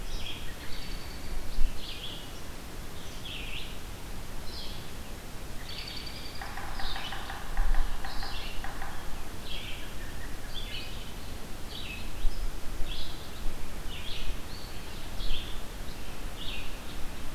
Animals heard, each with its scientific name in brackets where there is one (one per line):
American Robin (Turdus migratorius)
Yellow-bellied Sapsucker (Sphyrapicus varius)
Red-eyed Vireo (Vireo olivaceus)